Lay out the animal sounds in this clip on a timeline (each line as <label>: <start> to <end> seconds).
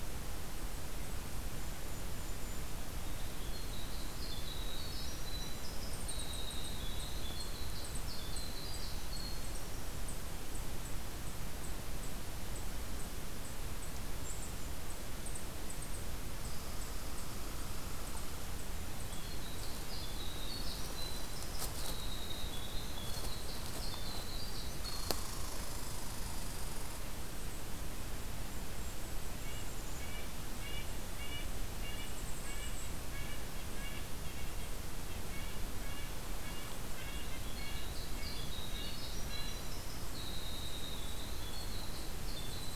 Golden-crowned Kinglet (Regulus satrapa): 1.3 to 2.8 seconds
Winter Wren (Troglodytes hiemalis): 3.2 to 10.0 seconds
Red Squirrel (Tamiasciurus hudsonicus): 16.5 to 18.8 seconds
Winter Wren (Troglodytes hiemalis): 18.9 to 25.4 seconds
Red Squirrel (Tamiasciurus hudsonicus): 24.8 to 27.0 seconds
Golden-crowned Kinglet (Regulus satrapa): 28.1 to 29.7 seconds
Red-breasted Nuthatch (Sitta canadensis): 29.2 to 39.8 seconds
Golden-crowned Kinglet (Regulus satrapa): 31.1 to 33.0 seconds
Winter Wren (Troglodytes hiemalis): 37.5 to 42.8 seconds
Golden-crowned Kinglet (Regulus satrapa): 40.5 to 42.8 seconds